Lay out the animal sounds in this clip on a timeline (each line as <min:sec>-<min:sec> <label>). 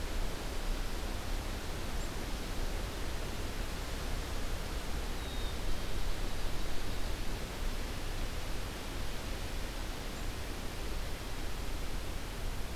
0:05.1-0:06.1 Black-capped Chickadee (Poecile atricapillus)